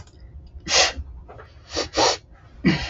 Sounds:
Sniff